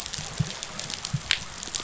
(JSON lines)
{"label": "biophony", "recorder": "SoundTrap 500"}